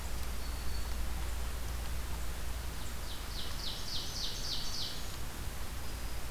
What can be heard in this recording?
Black-throated Green Warbler, Ovenbird